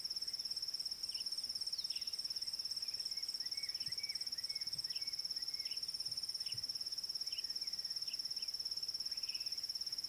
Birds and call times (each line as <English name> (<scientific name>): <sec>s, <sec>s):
Parrot-billed Sparrow (Passer gongonensis): 1.1s, 7.3s